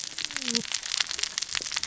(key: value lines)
label: biophony, cascading saw
recorder: SoundTrap 600 or HydroMoth